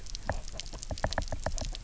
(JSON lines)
{"label": "biophony, knock", "recorder": "SoundTrap 300"}